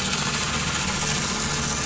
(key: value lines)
label: anthrophony, boat engine
recorder: SoundTrap 500